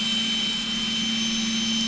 {"label": "anthrophony, boat engine", "recorder": "SoundTrap 500"}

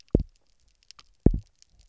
{"label": "biophony, double pulse", "recorder": "SoundTrap 300"}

